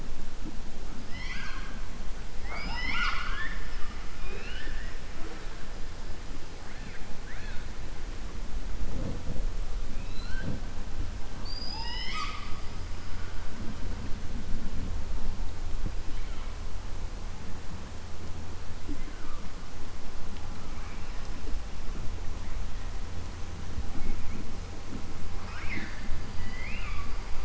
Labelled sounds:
26.3	27.1	killer whale, southern resident, 1.1 to 4.9 kHz

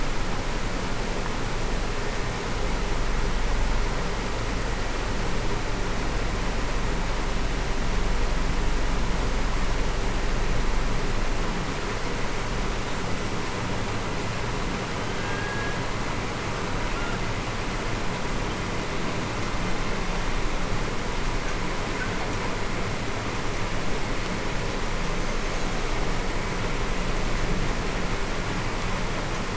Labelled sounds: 15.2	15.7	killer whale, Bigg's (transient), 1.6 to 1.7 kHz

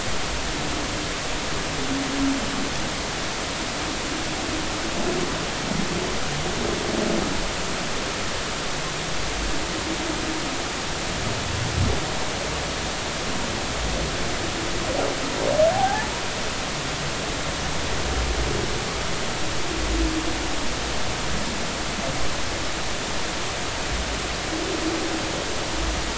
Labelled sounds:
15.7	16.1	humpback whale, 0.80 to 0.96 kHz

